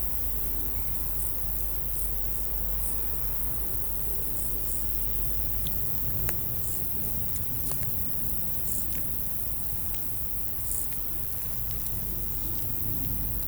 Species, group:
Chorthippus brunneus
Orthoptera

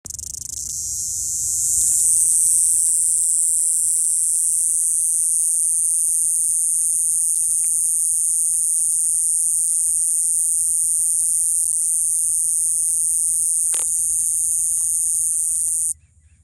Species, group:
Diceroprocta eugraphica
Cicadidae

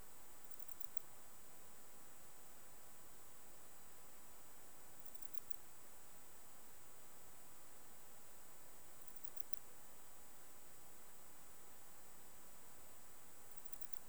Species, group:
Poecilimon paros
Orthoptera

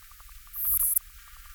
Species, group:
Poecilimon sanctipauli
Orthoptera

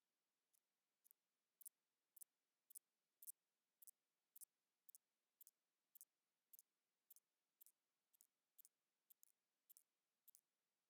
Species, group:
Thyreonotus corsicus
Orthoptera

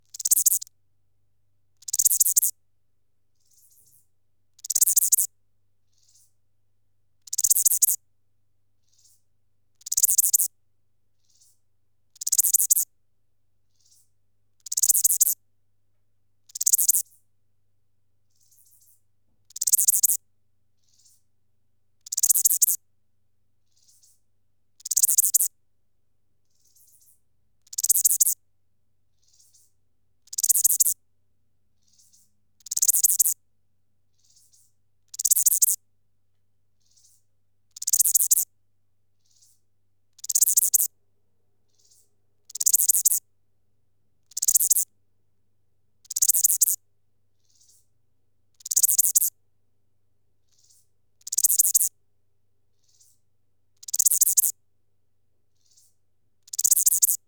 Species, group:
Albarracinia zapaterii
Orthoptera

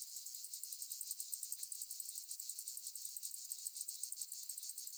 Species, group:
Euthystira brachyptera
Orthoptera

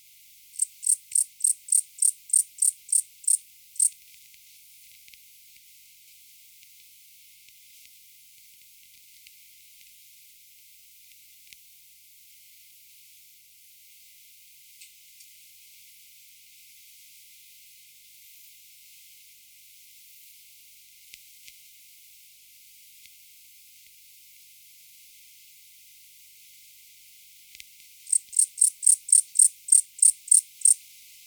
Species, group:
Pholidoptera macedonica
Orthoptera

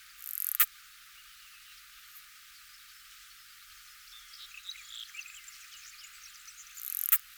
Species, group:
Poecilimon obesus
Orthoptera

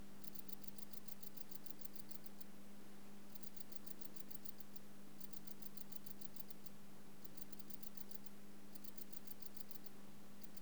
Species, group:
Vichetia oblongicollis
Orthoptera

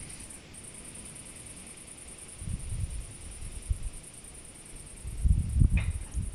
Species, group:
Tettigonia viridissima
Orthoptera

